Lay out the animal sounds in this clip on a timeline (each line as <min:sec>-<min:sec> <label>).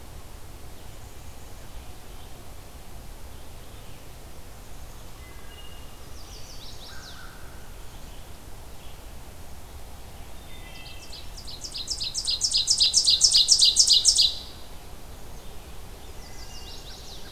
0:00.0-0:17.3 Red-eyed Vireo (Vireo olivaceus)
0:00.6-0:01.7 Black-capped Chickadee (Poecile atricapillus)
0:04.4-0:05.2 Black-capped Chickadee (Poecile atricapillus)
0:05.1-0:06.0 Wood Thrush (Hylocichla mustelina)
0:05.8-0:07.3 Chestnut-sided Warbler (Setophaga pensylvanica)
0:06.7-0:07.5 American Crow (Corvus brachyrhynchos)
0:10.2-0:11.5 Wood Thrush (Hylocichla mustelina)
0:10.5-0:14.6 Ovenbird (Seiurus aurocapilla)
0:16.0-0:17.2 Chestnut-sided Warbler (Setophaga pensylvanica)
0:16.0-0:17.0 Wood Thrush (Hylocichla mustelina)